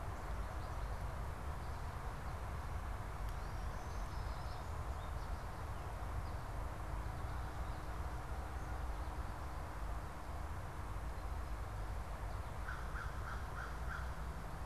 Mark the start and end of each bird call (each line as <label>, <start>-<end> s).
Black-throated Green Warbler (Setophaga virens), 2.9-4.7 s
American Goldfinch (Spinus tristis), 3.3-6.4 s
American Crow (Corvus brachyrhynchos), 12.5-14.4 s